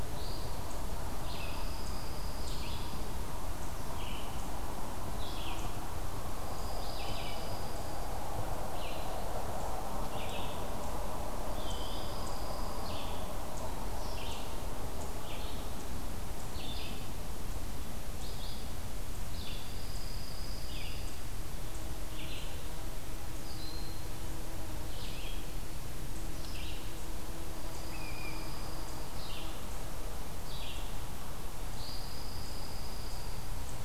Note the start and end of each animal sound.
[0.00, 33.84] Red-eyed Vireo (Vireo olivaceus)
[1.06, 3.10] Pine Warbler (Setophaga pinus)
[6.25, 8.16] Pine Warbler (Setophaga pinus)
[11.36, 13.07] Pine Warbler (Setophaga pinus)
[19.33, 21.26] Pine Warbler (Setophaga pinus)
[23.31, 24.14] Broad-winged Hawk (Buteo platypterus)
[27.32, 29.12] Pine Warbler (Setophaga pinus)
[31.56, 33.56] Pine Warbler (Setophaga pinus)

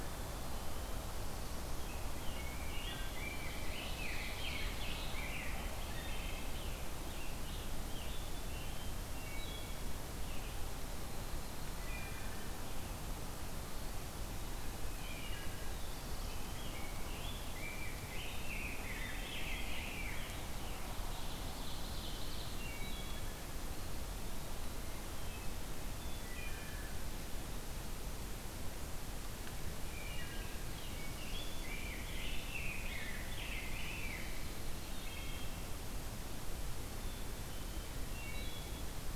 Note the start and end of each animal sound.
[0.00, 0.91] Black-capped Chickadee (Poecile atricapillus)
[1.42, 5.83] Rose-breasted Grosbeak (Pheucticus ludovicianus)
[2.49, 3.15] Wood Thrush (Hylocichla mustelina)
[5.38, 6.57] Wood Thrush (Hylocichla mustelina)
[6.06, 9.01] Scarlet Tanager (Piranga olivacea)
[9.07, 9.95] Wood Thrush (Hylocichla mustelina)
[11.64, 12.58] Wood Thrush (Hylocichla mustelina)
[14.88, 15.72] Wood Thrush (Hylocichla mustelina)
[16.23, 20.40] Rose-breasted Grosbeak (Pheucticus ludovicianus)
[20.00, 22.70] Ovenbird (Seiurus aurocapilla)
[22.46, 23.52] Wood Thrush (Hylocichla mustelina)
[25.83, 27.08] Wood Thrush (Hylocichla mustelina)
[29.74, 30.81] Wood Thrush (Hylocichla mustelina)
[30.57, 34.87] Rose-breasted Grosbeak (Pheucticus ludovicianus)
[34.78, 35.99] Wood Thrush (Hylocichla mustelina)
[36.80, 37.97] Black-capped Chickadee (Poecile atricapillus)
[37.91, 39.16] Wood Thrush (Hylocichla mustelina)

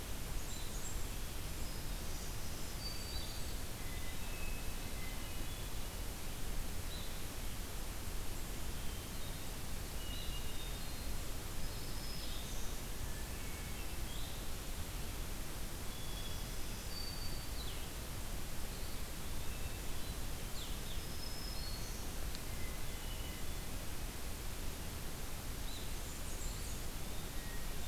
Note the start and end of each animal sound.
[0.00, 1.05] Blackburnian Warbler (Setophaga fusca)
[0.40, 27.88] Blue-headed Vireo (Vireo solitarius)
[1.90, 3.54] Black-throated Green Warbler (Setophaga virens)
[1.97, 3.66] Blackburnian Warbler (Setophaga fusca)
[3.75, 6.06] Hermit Thrush (Catharus guttatus)
[9.87, 11.32] Hermit Thrush (Catharus guttatus)
[11.31, 12.96] Black-throated Green Warbler (Setophaga virens)
[13.17, 14.01] Hermit Thrush (Catharus guttatus)
[15.67, 16.61] Hermit Thrush (Catharus guttatus)
[16.12, 17.60] Black-throated Green Warbler (Setophaga virens)
[18.53, 19.85] Eastern Wood-Pewee (Contopus virens)
[19.23, 20.29] Hermit Thrush (Catharus guttatus)
[20.79, 22.27] Black-throated Green Warbler (Setophaga virens)
[22.49, 23.71] Hermit Thrush (Catharus guttatus)
[25.54, 26.96] Blackburnian Warbler (Setophaga fusca)
[26.28, 27.29] Eastern Wood-Pewee (Contopus virens)
[27.29, 27.88] Hermit Thrush (Catharus guttatus)

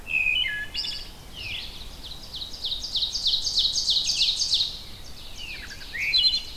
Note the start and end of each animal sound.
[0.00, 1.26] Wood Thrush (Hylocichla mustelina)
[0.00, 6.57] Red-eyed Vireo (Vireo olivaceus)
[1.24, 1.68] Veery (Catharus fuscescens)
[1.29, 6.57] Ovenbird (Seiurus aurocapilla)
[5.33, 6.57] Wood Thrush (Hylocichla mustelina)

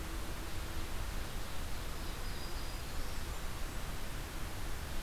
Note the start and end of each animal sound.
[1.50, 3.22] Black-throated Green Warbler (Setophaga virens)

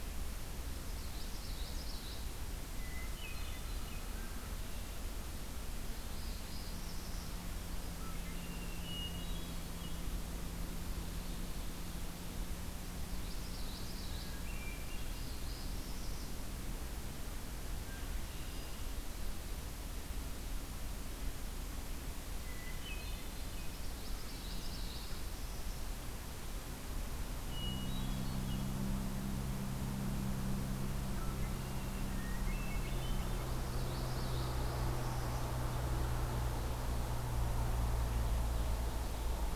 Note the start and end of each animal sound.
[0.72, 2.37] Common Yellowthroat (Geothlypis trichas)
[2.65, 3.96] Hermit Thrush (Catharus guttatus)
[2.90, 4.61] American Crow (Corvus brachyrhynchos)
[6.04, 7.40] Northern Parula (Setophaga americana)
[7.84, 8.67] Red-winged Blackbird (Agelaius phoeniceus)
[8.29, 9.68] Hermit Thrush (Catharus guttatus)
[12.95, 14.40] Common Yellowthroat (Geothlypis trichas)
[14.07, 15.27] Hermit Thrush (Catharus guttatus)
[15.12, 16.41] Northern Parula (Setophaga americana)
[17.77, 19.01] Red-winged Blackbird (Agelaius phoeniceus)
[18.39, 19.06] Hermit Thrush (Catharus guttatus)
[22.47, 23.61] Hermit Thrush (Catharus guttatus)
[23.72, 25.18] Common Yellowthroat (Geothlypis trichas)
[27.51, 28.79] Hermit Thrush (Catharus guttatus)
[31.19, 32.12] Red-winged Blackbird (Agelaius phoeniceus)
[32.13, 33.31] Hermit Thrush (Catharus guttatus)
[33.26, 34.57] Common Yellowthroat (Geothlypis trichas)
[34.23, 35.60] Northern Parula (Setophaga americana)

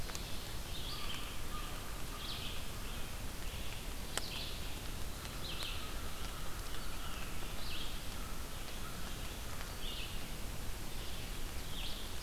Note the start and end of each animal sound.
[0.00, 0.72] Ovenbird (Seiurus aurocapilla)
[0.00, 12.22] Red-eyed Vireo (Vireo olivaceus)
[0.85, 2.53] American Crow (Corvus brachyrhynchos)
[4.92, 9.82] American Crow (Corvus brachyrhynchos)
[11.37, 12.22] Ovenbird (Seiurus aurocapilla)

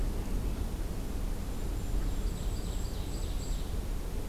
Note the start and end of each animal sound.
[1.04, 3.74] Golden-crowned Kinglet (Regulus satrapa)
[1.72, 3.87] Ovenbird (Seiurus aurocapilla)

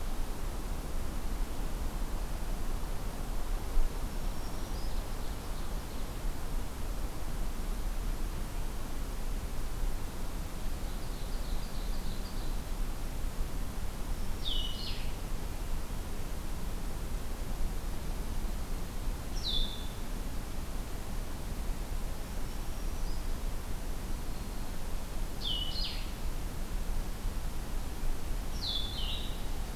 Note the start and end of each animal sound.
[3.64, 5.03] Black-throated Green Warbler (Setophaga virens)
[4.75, 6.50] Ovenbird (Seiurus aurocapilla)
[10.58, 12.83] Ovenbird (Seiurus aurocapilla)
[13.95, 15.13] Black-throated Green Warbler (Setophaga virens)
[14.06, 20.05] Blue-headed Vireo (Vireo solitarius)
[21.98, 23.40] Black-throated Green Warbler (Setophaga virens)
[24.08, 24.97] Black-throated Green Warbler (Setophaga virens)
[25.27, 29.55] Blue-headed Vireo (Vireo solitarius)

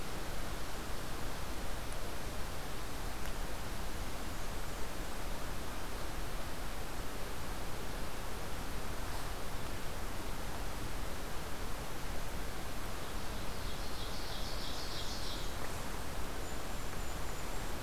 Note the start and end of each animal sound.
[3.74, 5.26] Blackburnian Warbler (Setophaga fusca)
[12.71, 15.53] Ovenbird (Seiurus aurocapilla)
[14.06, 15.97] Blackburnian Warbler (Setophaga fusca)
[15.93, 17.82] Golden-crowned Kinglet (Regulus satrapa)

